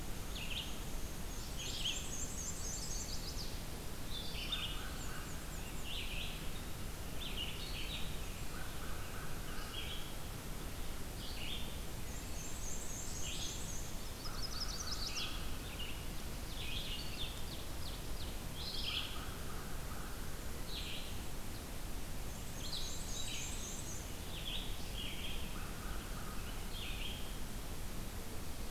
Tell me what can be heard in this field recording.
Red-eyed Vireo, Black-and-white Warbler, Chestnut-sided Warbler, American Crow, Ovenbird